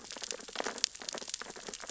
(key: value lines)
label: biophony, sea urchins (Echinidae)
recorder: SoundTrap 600 or HydroMoth